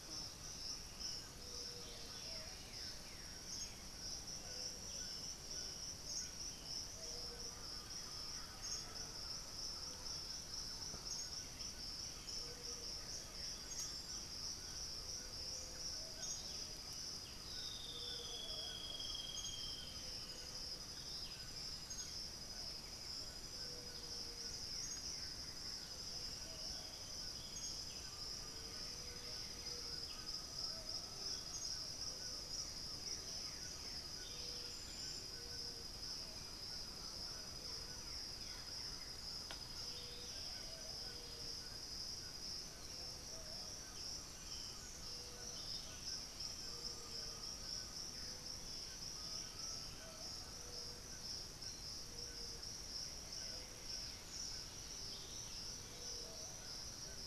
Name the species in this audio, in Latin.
Saltator coerulescens, Turdus ignobilis, Ramphastos tucanus, Crypturellus undulatus, Campylorhynchus turdinus, unidentified bird, Saltator maximus, Dendroma erythroptera